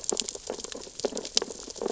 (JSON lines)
{"label": "biophony, sea urchins (Echinidae)", "recorder": "SoundTrap 600 or HydroMoth"}